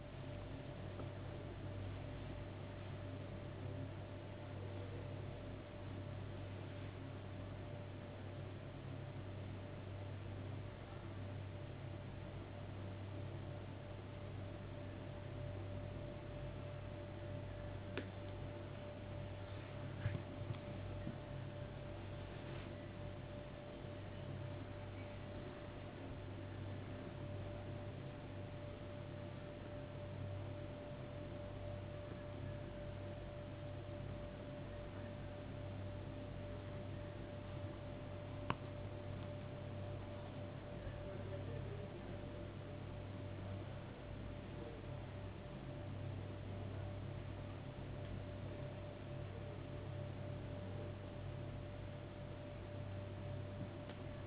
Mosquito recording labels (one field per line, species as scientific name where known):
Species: no mosquito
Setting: insect culture